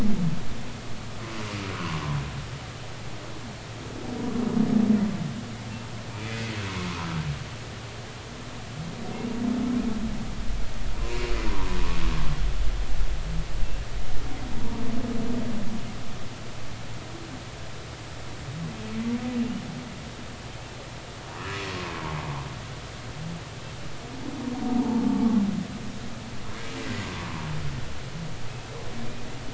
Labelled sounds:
1.7	2.0	humpback whale, 0.93 to 1.2 kHz
6.1	6.5	humpback whale, 2.3 to 2.5 kHz
19.4	19.6	humpback whale, 2.7 to 3.0 kHz
21.4	21.6	humpback whale, 1.1 to 1.4 kHz

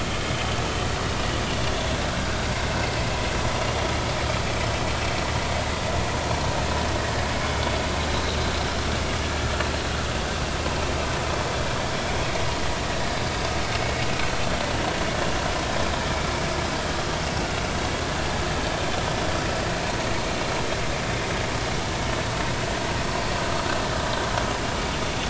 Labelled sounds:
8.1	8.4	vessel noise, 3.7 to 4.1 kHz

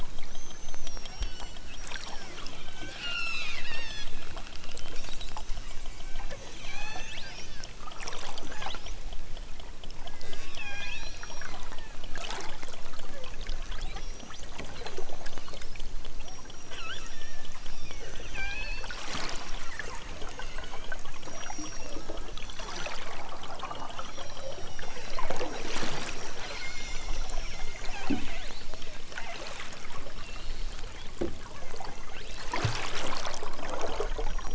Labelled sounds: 0.2	1.7	killer whale, southern Alaska resident, 1.3 to 8.0 kHz
2.3	4.1	killer whale, southern Alaska resident, 0.60 to 8.0 kHz
5.6	7.2	killer whale, southern Alaska resident, 0.42 to 6.8 kHz
8.4	9.0	killer whale, southern Alaska resident, 1.3 to 6.4 kHz
9.9	12.0	killer whale, southern Alaska resident, 0.37 to 6.1 kHz
13.1	14.5	killer whale, southern Alaska resident, 0.78 to 6.5 kHz
16.2	19.0	killer whale, southern Alaska resident, 0.46 to 6.0 kHz
20.3	23.0	killer whale, southern Alaska resident, 0.92 to 6.3 kHz
23.5	25.2	killer whale, southern Alaska resident, 1.8 to 6.0 kHz
26.3	28.0	killer whale, southern Alaska resident, 1.4 to 7.6 kHz
28.3	28.8	killer whale, southern Alaska resident, 1.7 to 5.2 kHz
30.1	30.7	killer whale, southern Alaska resident, 2.2 to 4.9 kHz
31.3	32.2	killer whale, southern Alaska resident, 0.55 to 2.9 kHz

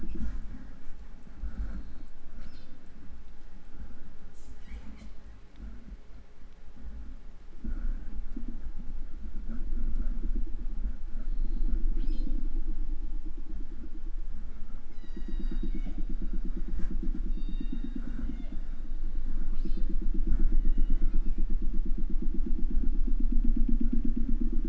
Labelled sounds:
2.3	2.9	killer whale, southern resident, 0.34 to 6.0 kHz
4.3	5.2	killer whale, southern resident, J pod, call S05, 1.2 to 8.0 kHz
11.9	12.7	killer whale, southern resident, 0.31 to 8.0 kHz
14.9	16.1	killer whale, southern resident, J pod, call S01, 1.6 to 8.0 kHz
17.3	18.8	killer whale, southern resident, J pod, call S01, 0.44 to 8.0 kHz
19.5	20.0	killer whale, southern resident, 0.42 to 8.0 kHz
20.4	21.6	killer whale, southern resident, 0.38 to 6.9 kHz

